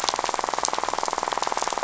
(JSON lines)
{"label": "biophony, rattle", "recorder": "SoundTrap 500"}